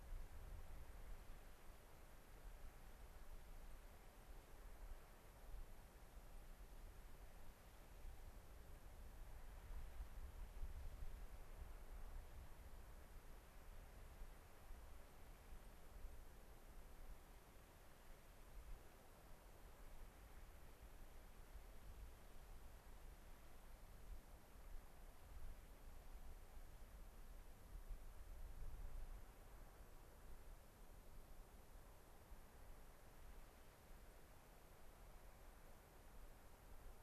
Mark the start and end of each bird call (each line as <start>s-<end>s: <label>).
0.9s-1.0s: White-crowned Sparrow (Zonotrichia leucophrys)
3.7s-3.8s: White-crowned Sparrow (Zonotrichia leucophrys)
4.1s-4.3s: White-crowned Sparrow (Zonotrichia leucophrys)
6.3s-6.4s: White-crowned Sparrow (Zonotrichia leucophrys)